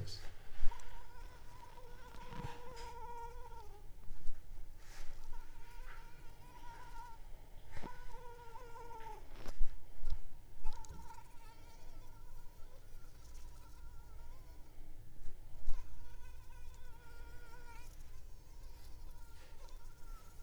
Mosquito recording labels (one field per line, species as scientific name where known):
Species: Anopheles arabiensis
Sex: female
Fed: unfed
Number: one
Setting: cup